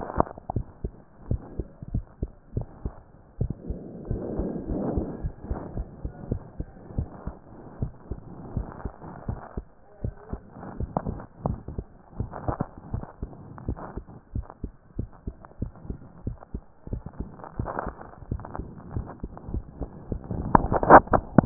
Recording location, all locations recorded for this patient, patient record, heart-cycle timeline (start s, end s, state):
mitral valve (MV)
pulmonary valve (PV)+tricuspid valve (TV)+mitral valve (MV)
#Age: Child
#Sex: Male
#Height: 117.0 cm
#Weight: 19.7 kg
#Pregnancy status: False
#Murmur: Absent
#Murmur locations: nan
#Most audible location: nan
#Systolic murmur timing: nan
#Systolic murmur shape: nan
#Systolic murmur grading: nan
#Systolic murmur pitch: nan
#Systolic murmur quality: nan
#Diastolic murmur timing: nan
#Diastolic murmur shape: nan
#Diastolic murmur grading: nan
#Diastolic murmur pitch: nan
#Diastolic murmur quality: nan
#Outcome: Abnormal
#Campaign: 2015 screening campaign
0.00	0.97	unannotated
0.97	1.26	diastole
1.26	1.44	S1
1.44	1.56	systole
1.56	1.70	S2
1.70	1.92	diastole
1.92	2.04	S1
2.04	2.18	systole
2.18	2.30	S2
2.30	2.54	diastole
2.54	2.68	S1
2.68	2.84	systole
2.84	2.97	S2
2.97	3.38	diastole
3.38	3.56	S1
3.56	3.66	systole
3.66	3.80	S2
3.80	4.08	diastole
4.08	4.24	S1
4.24	4.37	systole
4.37	4.49	S2
4.49	4.67	diastole
4.67	4.80	S1
4.80	4.94	systole
4.94	5.07	S2
5.07	5.22	diastole
5.22	5.32	S1
5.32	5.46	systole
5.46	5.58	S2
5.58	5.73	diastole
5.73	5.86	S1
5.86	6.02	systole
6.02	6.10	S2
6.10	6.28	diastole
6.28	6.42	S1
6.42	6.56	systole
6.56	6.68	S2
6.68	6.94	diastole
6.94	7.06	S1
7.06	7.24	systole
7.24	7.34	S2
7.34	7.78	diastole
7.78	7.92	S1
7.92	8.08	systole
8.08	8.22	S2
8.22	8.52	diastole
8.52	8.68	S1
8.68	8.82	systole
8.82	8.92	S2
8.92	9.26	diastole
9.26	9.40	S1
9.40	9.56	systole
9.56	9.66	S2
9.66	10.00	diastole
10.00	10.14	S1
10.14	10.30	systole
10.30	10.40	S2
10.40	10.72	diastole
10.72	10.90	S1
10.90	11.06	systole
11.06	11.18	S2
11.18	11.44	diastole
11.44	11.60	S1
11.60	11.76	systole
11.76	11.86	S2
11.86	12.18	diastole
12.18	12.32	S1
12.32	12.46	systole
12.46	12.56	S2
12.56	12.90	diastole
12.90	13.04	S1
13.04	13.22	systole
13.22	13.36	S2
13.36	13.66	diastole
13.66	13.80	S1
13.80	13.95	systole
13.95	14.06	S2
14.06	14.34	diastole
14.34	14.46	S1
14.46	14.62	systole
14.62	14.72	S2
14.72	14.98	diastole
14.98	15.10	S1
15.10	15.26	systole
15.26	15.36	S2
15.36	15.60	diastole
15.60	15.72	S1
15.72	15.88	systole
15.88	15.98	S2
15.98	16.24	diastole
16.24	16.38	S1
16.38	16.52	systole
16.52	16.62	S2
16.62	16.90	diastole
16.90	17.04	S1
17.04	17.18	systole
17.18	17.28	S2
17.28	17.58	diastole
17.58	21.46	unannotated